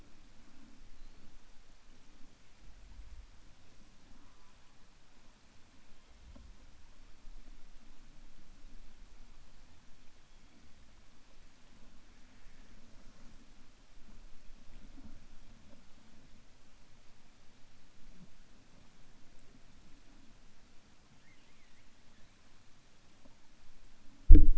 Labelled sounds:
21.1	21.9	killer whale, 1.2 to 3.2 kHz

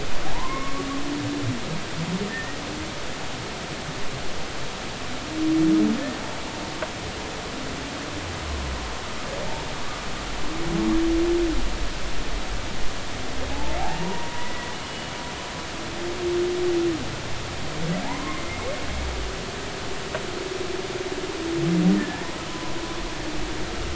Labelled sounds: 0.2	0.8	humpback whale, 0.80 to 2.3 kHz
2.3	2.6	humpback whale, 1.7 to 1.9 kHz
13.5	15.1	humpback whale, 0.80 to 3.0 kHz
18.0	18.7	humpback whale, 0.80 to 2.2 kHz
21.9	22.7	humpback whale, 0.96 to 2.0 kHz

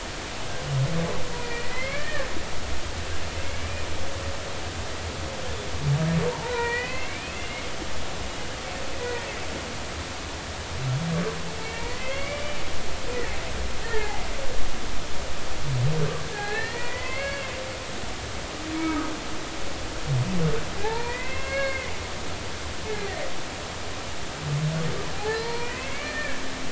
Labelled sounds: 1.3	2.0	humpback whale, 0.93 to 2.4 kHz
2.9	3.3	humpback whale, 1.5 to 1.9 kHz
6.3	7.7	humpback whale, 0.80 to 2.9 kHz
9.0	9.3	humpback whale, 1.8 to 2.0 kHz
11.6	12.6	humpback whale, 0.86 to 3.4 kHz
13.8	15.2	humpback whale, 0.80 to 2.0 kHz
16.3	17.5	humpback whale, 0.80 to 4.4 kHz
20.8	21.9	humpback whale, 0.80 to 2.8 kHz
25.1	26.4	humpback whale, 0.80 to 4.3 kHz

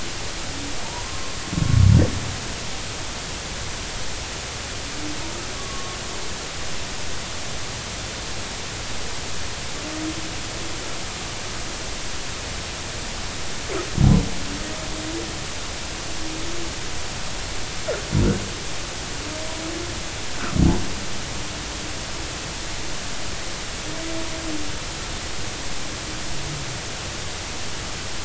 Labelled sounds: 1.0	1.3	humpback whale, 1.0 to 1.1 kHz
5.5	6.0	humpback whale, 1.1 to 1.2 kHz

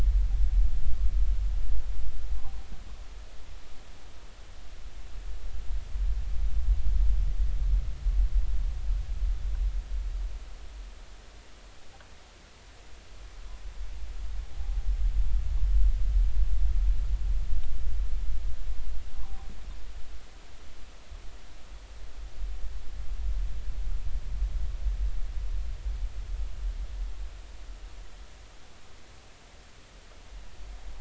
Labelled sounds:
14.5	14.8	humpback whale, 0.80 to 0.86 kHz

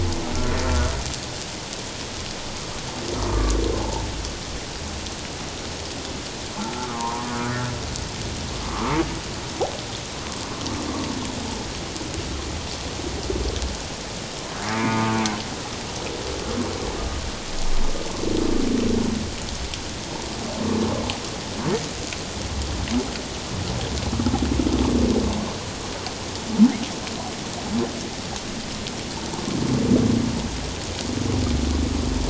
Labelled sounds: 0.6	0.9	humpback whale, 1.3 to 1.5 kHz
3.3	4.0	humpback whale, 0.78 to 1.2 kHz
6.6	8.9	humpback whale, 0.78 to 1.5 kHz
14.6	15.2	humpback whale, 0.84 to 2.5 kHz

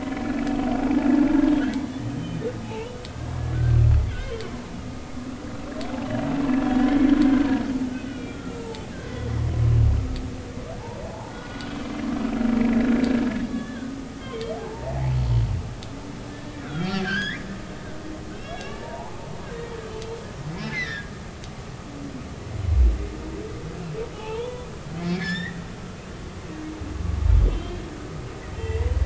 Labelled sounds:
0.1	0.4	humpback whale, 1.6 to 1.8 kHz
0.8	1.1	humpback whale, 0.80 to 0.90 kHz
2.2	4.4	humpback whale, 1.4 to 3.5 kHz
6.9	7.1	humpback whale, 2.0 to 2.3 kHz
8.1	8.8	humpback whale, 0.83 to 3.4 kHz
11.3	11.7	humpback whale, 1.3 to 1.5 kHz
12.7	13.0	humpback whale, 1.5 to 1.8 kHz
13.5	14.9	humpback whale, 0.80 to 3.6 kHz
16.3	17.5	humpback whale, 1.3 to 5.1 kHz
18.3	19.2	humpback whale, 0.80 to 4.0 kHz
19.5	19.8	humpback whale, 1.8 to 2.0 kHz
20.6	21.1	humpback whale, 1.7 to 4.3 kHz
21.7	22.1	humpback whale, 1.6 to 2.5 kHz
24.2	25.6	humpback whale, 0.80 to 5.5 kHz
27.5	28.9	humpback whale, 1.9 to 3.3 kHz

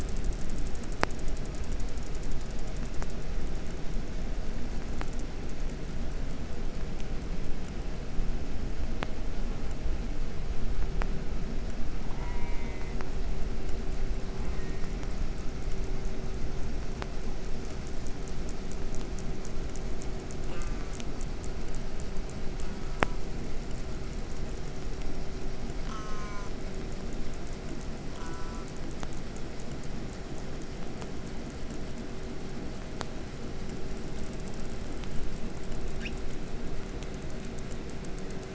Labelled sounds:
12.1	13.1	killer whale, southern resident, J pod, call S04, 0.41 to 3.9 kHz
14.3	15.2	killer whale, southern resident, J pod, call S04, 0.40 to 3.0 kHz
20.5	21.2	killer whale, southern resident, J pod, call S04, 0.37 to 3.5 kHz
22.6	23.2	killer whale, southern resident, J pod, call S04, 0.33 to 2.9 kHz
25.8	26.5	killer whale, southern resident, J pod, call S04, 0.47 to 8.0 kHz
28.1	28.7	killer whale, southern resident, J pod, call S04, 0.43 to 8.0 kHz
36.0	36.1	killer whale, 1.2 to 6.7 kHz

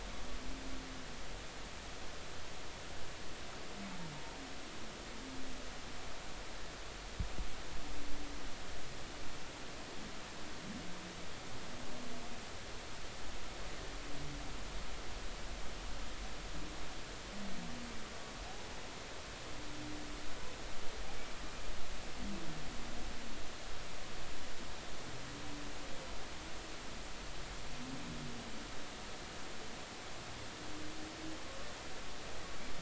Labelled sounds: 18.4	18.7	humpback whale, 0.80 to 0.86 kHz

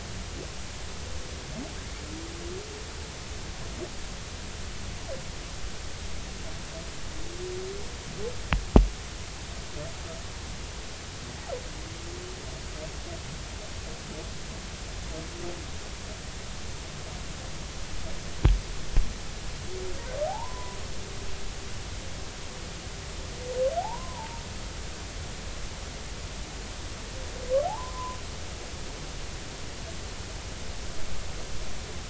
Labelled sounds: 20.2	20.8	humpback whale, 0.80 to 1.1 kHz
23.8	24.4	humpback whale, 0.80 to 1.1 kHz
27.6	28.2	humpback whale, 0.80 to 1.2 kHz

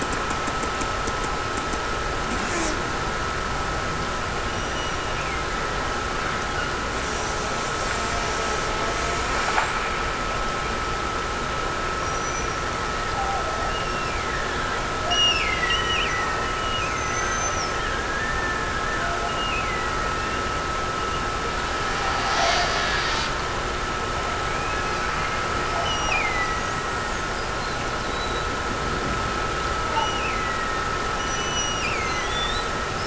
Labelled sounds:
2.3	2.9	killer whale, Bigg's (transient), Gulf of Alaska transient, 0 to 8.0 kHz
4.5	6.5	killer whale, Bigg's (transient), Gulf of Alaska transient, 1.5 to 3.0 kHz
13.6	20.7	killer whale, Bigg's (transient), Gulf of Alaska transient, 1.4 to 6.5 kHz
25.8	27.3	killer whale, Bigg's (transient), Gulf of Alaska transient, 1.7 to 5.9 kHz
29.9	33.0	killer whale, Bigg's (transient), Gulf of Alaska transient, 1.6 to 6.0 kHz

